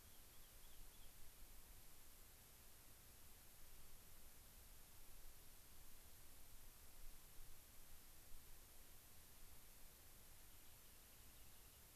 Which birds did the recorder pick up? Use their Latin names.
Salpinctes obsoletus